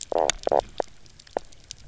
{"label": "biophony, knock croak", "recorder": "SoundTrap 300"}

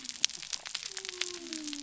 {"label": "biophony", "recorder": "SoundTrap 300"}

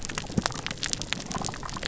{"label": "biophony", "recorder": "SoundTrap 300"}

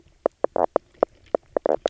{"label": "biophony, knock croak", "recorder": "SoundTrap 300"}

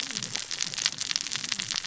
{"label": "biophony, cascading saw", "recorder": "SoundTrap 600 or HydroMoth"}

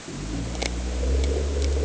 {"label": "anthrophony, boat engine", "recorder": "HydroMoth"}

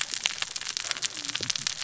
{"label": "biophony, cascading saw", "recorder": "SoundTrap 600 or HydroMoth"}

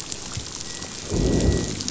{"label": "biophony, growl", "recorder": "SoundTrap 500"}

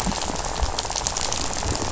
{"label": "biophony, rattle", "recorder": "SoundTrap 500"}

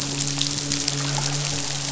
{"label": "biophony, midshipman", "recorder": "SoundTrap 500"}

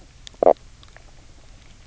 {"label": "biophony, knock croak", "recorder": "SoundTrap 300"}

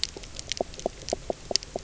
{"label": "biophony, knock croak", "recorder": "SoundTrap 300"}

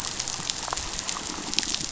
{"label": "biophony", "recorder": "SoundTrap 500"}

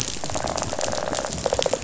{"label": "biophony, rattle response", "recorder": "SoundTrap 500"}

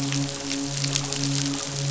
{"label": "biophony, midshipman", "recorder": "SoundTrap 500"}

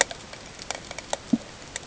{"label": "ambient", "recorder": "HydroMoth"}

